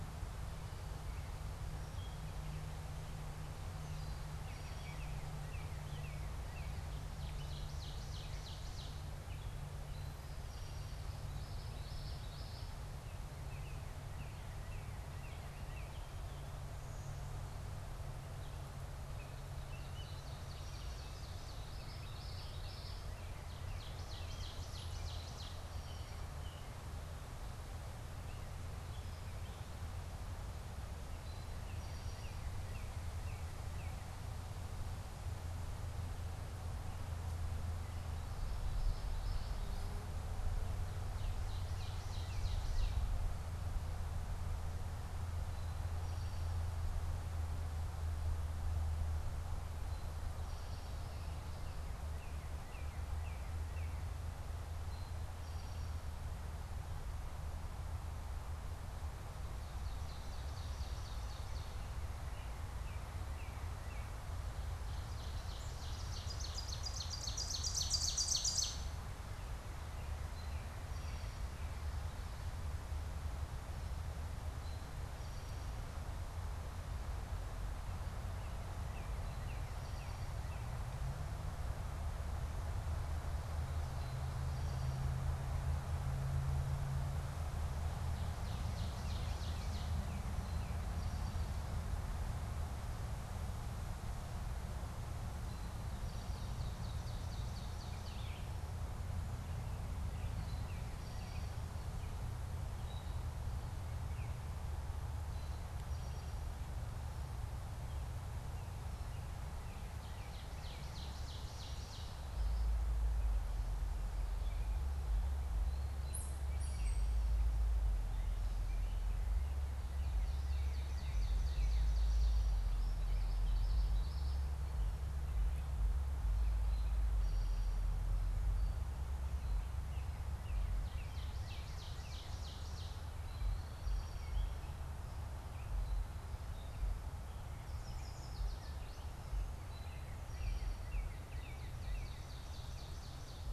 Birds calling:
Eastern Towhee (Pipilo erythrophthalmus), Ovenbird (Seiurus aurocapilla), Yellow Warbler (Setophaga petechia), Northern Cardinal (Cardinalis cardinalis), Common Yellowthroat (Geothlypis trichas)

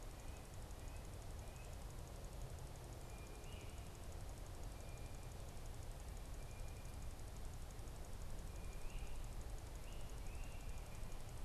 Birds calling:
Red-breasted Nuthatch (Sitta canadensis), Great Crested Flycatcher (Myiarchus crinitus), Blue Jay (Cyanocitta cristata)

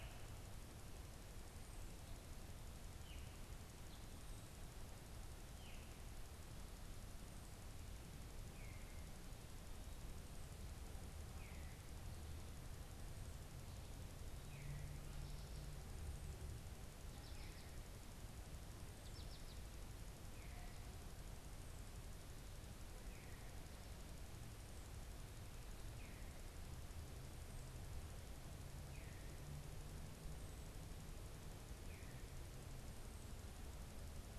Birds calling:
American Goldfinch (Spinus tristis), unidentified bird

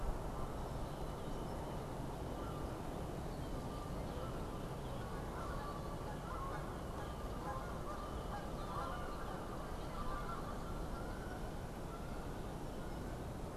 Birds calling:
Red-winged Blackbird (Agelaius phoeniceus), Canada Goose (Branta canadensis)

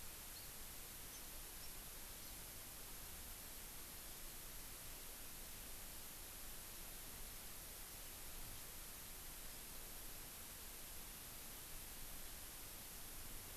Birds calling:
Hawaii Amakihi (Chlorodrepanis virens)

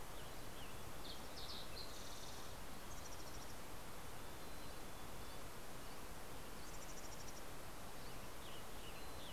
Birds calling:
Fox Sparrow (Passerella iliaca), Western Tanager (Piranga ludoviciana), Mountain Chickadee (Poecile gambeli)

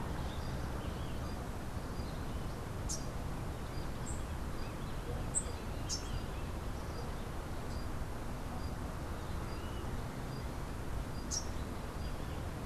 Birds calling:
unidentified bird, Rufous-capped Warbler (Basileuterus rufifrons)

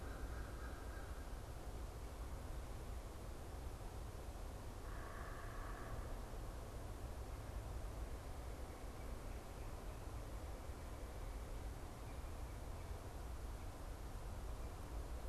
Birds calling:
American Crow (Corvus brachyrhynchos), unidentified bird

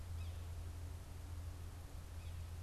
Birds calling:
Yellow-bellied Sapsucker (Sphyrapicus varius)

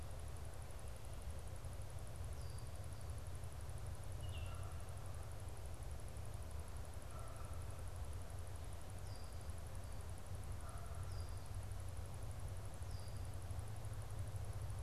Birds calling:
Canada Goose (Branta canadensis), Red-winged Blackbird (Agelaius phoeniceus), Baltimore Oriole (Icterus galbula)

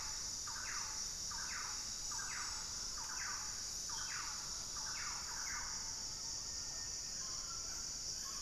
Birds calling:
Thrush-like Wren (Campylorhynchus turdinus), Mealy Parrot (Amazona farinosa), Buff-throated Saltator (Saltator maximus)

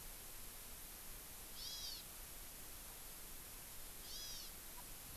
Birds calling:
Hawaii Amakihi (Chlorodrepanis virens)

